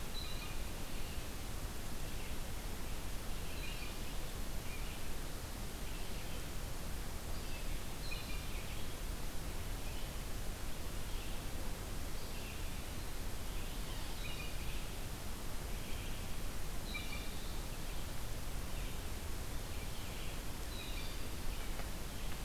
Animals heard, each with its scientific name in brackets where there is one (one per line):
Blue Jay (Cyanocitta cristata)
Red-eyed Vireo (Vireo olivaceus)